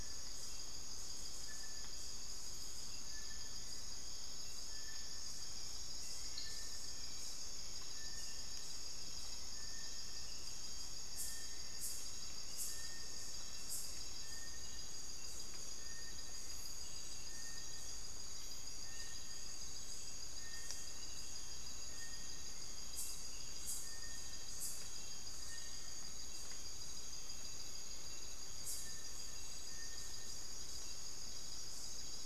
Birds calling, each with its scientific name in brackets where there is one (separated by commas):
Little Tinamou (Crypturellus soui), Hauxwell's Thrush (Turdus hauxwelli)